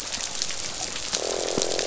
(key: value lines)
label: biophony, croak
recorder: SoundTrap 500